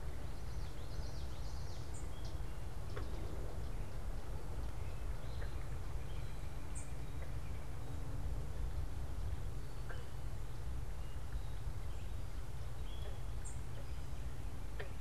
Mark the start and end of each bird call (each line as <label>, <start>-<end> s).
Common Yellowthroat (Geothlypis trichas), 0.0-1.9 s
unidentified bird, 1.8-2.2 s
unidentified bird, 6.6-7.0 s
unidentified bird, 13.3-13.7 s